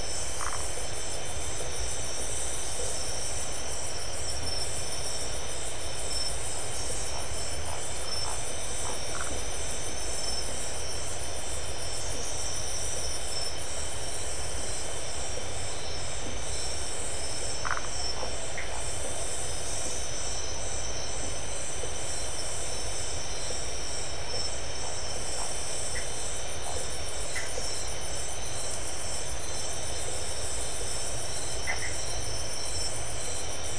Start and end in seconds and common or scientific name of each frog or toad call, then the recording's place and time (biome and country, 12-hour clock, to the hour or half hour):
0.3	1.0	Phyllomedusa distincta
9.0	9.5	Phyllomedusa distincta
17.5	18.1	Phyllomedusa distincta
18.5	18.8	Dendropsophus elegans
25.9	26.2	Dendropsophus elegans
27.1	27.7	Dendropsophus elegans
31.5	32.2	Dendropsophus elegans
Atlantic Forest, Brazil, 11pm